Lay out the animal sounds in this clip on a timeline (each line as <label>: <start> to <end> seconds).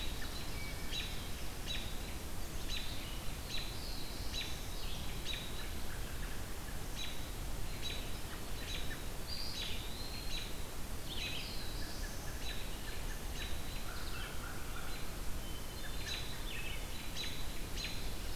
Hermit Thrush (Catharus guttatus): 0.0 to 1.2 seconds
American Robin (Turdus migratorius): 0.0 to 18.4 seconds
Black-throated Blue Warbler (Setophaga caerulescens): 3.3 to 5.1 seconds
Eastern Wood-Pewee (Contopus virens): 8.8 to 10.6 seconds
Black-throated Blue Warbler (Setophaga caerulescens): 11.0 to 12.5 seconds
American Crow (Corvus brachyrhynchos): 11.3 to 15.2 seconds
Hermit Thrush (Catharus guttatus): 15.3 to 16.5 seconds